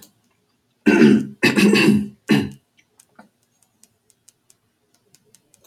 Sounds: Throat clearing